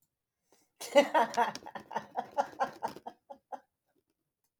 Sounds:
Laughter